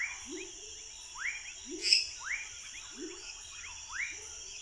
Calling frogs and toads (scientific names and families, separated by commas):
Boana raniceps (Hylidae), Leptodactylus fuscus (Leptodactylidae), Leptodactylus labyrinthicus (Leptodactylidae), Dendropsophus minutus (Hylidae)